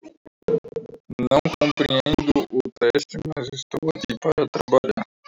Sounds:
Cough